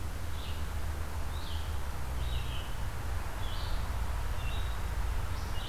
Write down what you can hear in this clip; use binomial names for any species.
Vireo olivaceus